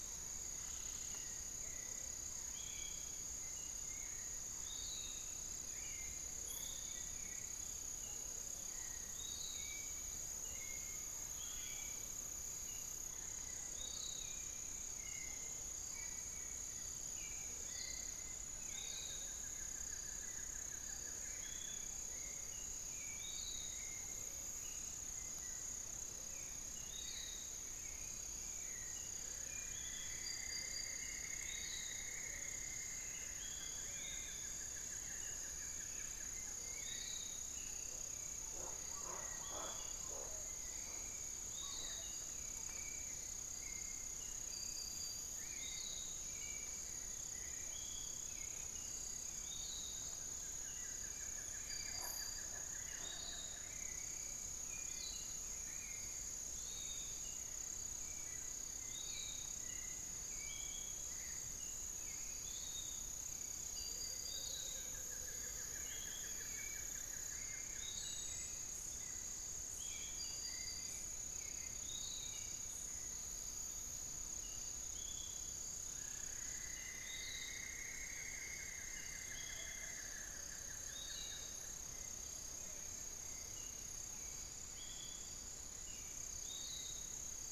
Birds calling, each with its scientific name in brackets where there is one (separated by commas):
Spix's Guan (Penelope jacquacu), Amazonian Motmot (Momotus momota), Goeldi's Antbird (Akletos goeldii), Piratic Flycatcher (Legatus leucophaius), unidentified bird, Cinnamon-throated Woodcreeper (Dendrexetastes rufigula), Hauxwell's Thrush (Turdus hauxwelli), Buff-throated Woodcreeper (Xiphorhynchus guttatus)